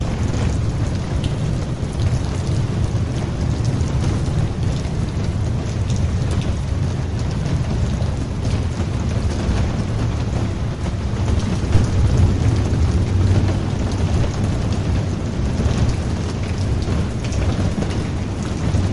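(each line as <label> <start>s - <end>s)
Large raindrops strike a rooftop or canopy, producing a deep, resonant drumming sound. 0.0s - 18.9s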